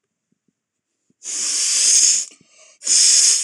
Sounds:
Sniff